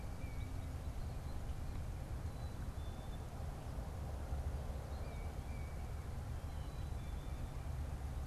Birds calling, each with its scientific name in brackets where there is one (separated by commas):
unidentified bird, Black-capped Chickadee (Poecile atricapillus)